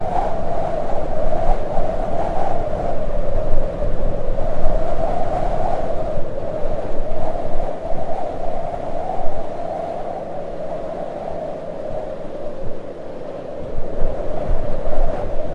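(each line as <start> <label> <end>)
0.1 High-frequency coastal wind blowing. 15.5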